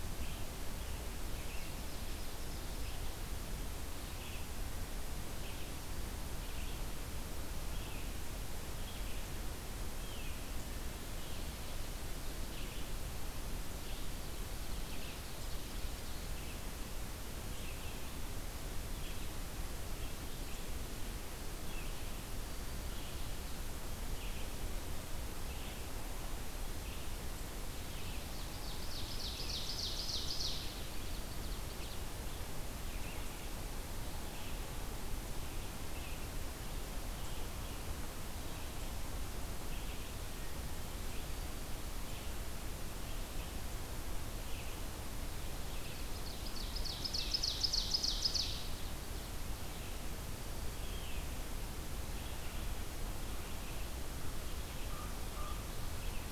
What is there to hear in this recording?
Red-eyed Vireo, Ovenbird, Common Raven